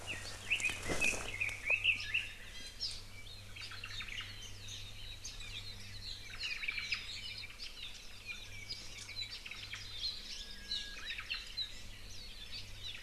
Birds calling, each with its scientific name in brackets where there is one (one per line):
Iiwi (Drepanis coccinea)
Omao (Myadestes obscurus)
Red-billed Leiothrix (Leiothrix lutea)
Japanese Bush Warbler (Horornis diphone)
Warbling White-eye (Zosterops japonicus)
Apapane (Himatione sanguinea)